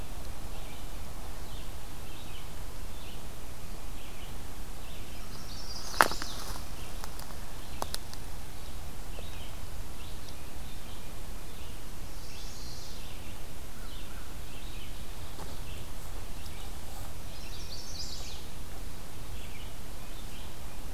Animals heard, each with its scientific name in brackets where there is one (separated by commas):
Red-eyed Vireo (Vireo olivaceus), Chestnut-sided Warbler (Setophaga pensylvanica)